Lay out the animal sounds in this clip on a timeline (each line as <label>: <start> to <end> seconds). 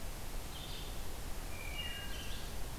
Red-eyed Vireo (Vireo olivaceus): 0.0 to 2.8 seconds
Wood Thrush (Hylocichla mustelina): 1.4 to 2.2 seconds